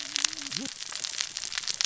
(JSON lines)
{"label": "biophony, cascading saw", "recorder": "SoundTrap 600 or HydroMoth"}